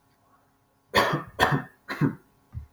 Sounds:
Cough